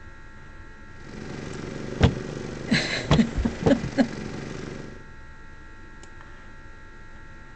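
From 0.79 to 5.14 seconds, the quiet sound of a lawn mower fades in and then fades out. Over it, at 1.99 seconds, thumping can be heard. Meanwhile, at 2.67 seconds, someone giggles.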